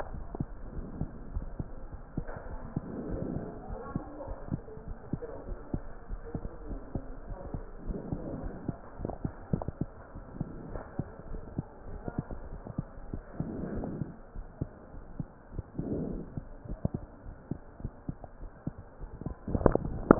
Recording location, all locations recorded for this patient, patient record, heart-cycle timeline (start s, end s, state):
aortic valve (AV)
aortic valve (AV)+pulmonary valve (PV)+tricuspid valve (TV)+mitral valve (MV)
#Age: Child
#Sex: Male
#Height: 114.0 cm
#Weight: 46.3 kg
#Pregnancy status: False
#Murmur: Absent
#Murmur locations: nan
#Most audible location: nan
#Systolic murmur timing: nan
#Systolic murmur shape: nan
#Systolic murmur grading: nan
#Systolic murmur pitch: nan
#Systolic murmur quality: nan
#Diastolic murmur timing: nan
#Diastolic murmur shape: nan
#Diastolic murmur grading: nan
#Diastolic murmur pitch: nan
#Diastolic murmur quality: nan
#Outcome: Normal
#Campaign: 2015 screening campaign
0.00	0.10	diastole
0.10	0.26	S1
0.26	0.36	systole
0.36	0.48	S2
0.48	0.74	diastole
0.74	0.88	S1
0.88	0.98	systole
0.98	1.10	S2
1.10	1.34	diastole
1.34	1.50	S1
1.50	1.56	systole
1.56	1.68	S2
1.68	1.90	diastole
1.90	2.02	S1
2.02	2.16	systole
2.16	2.26	S2
2.26	2.50	diastole
2.50	2.60	S1
2.60	2.72	systole
2.72	2.84	S2
2.84	3.06	diastole
3.06	3.24	S1
3.24	3.34	systole
3.34	3.48	S2
3.48	3.70	diastole
3.70	3.80	S1
3.80	3.90	systole
3.90	4.02	S2
4.02	4.24	diastole
4.24	4.38	S1
4.38	4.50	systole
4.50	4.62	S2
4.62	4.87	diastole
4.87	4.98	S1
4.98	5.10	systole
5.10	5.20	S2
5.20	5.46	diastole
5.46	5.58	S1
5.58	5.72	systole
5.72	5.84	S2
5.84	6.10	diastole
6.10	6.22	S1
6.22	6.30	systole
6.30	6.42	S2
6.42	6.66	diastole
6.66	6.82	S1
6.82	6.94	systole
6.94	7.04	S2
7.04	7.26	diastole
7.26	7.38	S1
7.38	7.52	systole
7.52	7.64	S2
7.64	7.86	diastole
7.86	8.00	S1
8.00	8.09	systole
8.09	8.20	S2
8.20	8.40	diastole
8.40	8.54	S1
8.54	8.66	systole
8.66	8.78	S2
8.78	9.00	diastole
9.00	9.16	S1
9.16	9.22	systole
9.22	9.32	S2
9.32	9.52	diastole
9.52	9.66	S1
9.66	9.80	systole
9.80	9.90	S2
9.90	10.13	diastole
10.13	10.24	S1
10.24	10.34	systole
10.34	10.48	S2
10.48	10.72	diastole
10.72	10.84	S1
10.84	10.97	systole
10.97	11.08	S2
11.08	11.30	diastole
11.30	11.42	S1
11.42	11.54	systole
11.54	11.66	S2
11.66	11.90	diastole
11.90	12.02	S1
12.02	12.14	systole
12.14	12.26	S2
12.26	12.46	diastole
12.46	12.62	S1
12.62	12.74	systole
12.74	12.86	S2
12.86	13.10	diastole
13.10	13.24	S1
13.24	13.38	systole
13.38	13.50	S2
13.50	13.70	diastole
13.70	13.86	S1
13.86	13.94	systole
13.94	14.08	S2
14.08	14.36	diastole
14.36	14.46	S1
14.46	14.60	systole
14.60	14.72	S2
14.72	14.98	diastole
14.98	15.03	S1